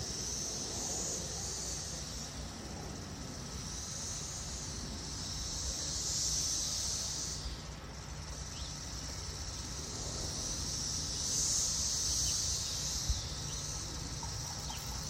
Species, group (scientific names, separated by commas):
Magicicada cassini, Cicadidae